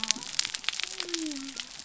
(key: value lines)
label: biophony
recorder: SoundTrap 300